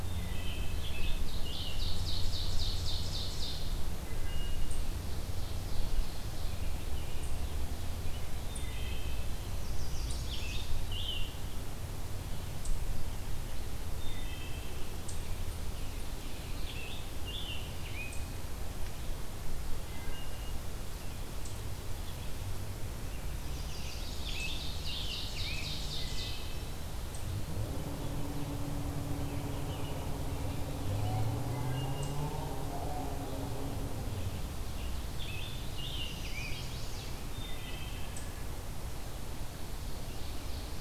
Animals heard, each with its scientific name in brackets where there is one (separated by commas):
Scarlet Tanager (Piranga olivacea), Chestnut-sided Warbler (Setophaga pensylvanica), Ovenbird (Seiurus aurocapilla), Wood Thrush (Hylocichla mustelina)